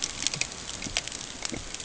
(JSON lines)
{"label": "ambient", "recorder": "HydroMoth"}